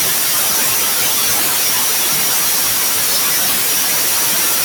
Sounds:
Sneeze